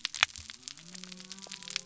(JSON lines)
{"label": "biophony", "recorder": "SoundTrap 300"}